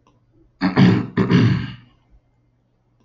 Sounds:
Throat clearing